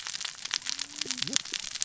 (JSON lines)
{"label": "biophony, cascading saw", "recorder": "SoundTrap 600 or HydroMoth"}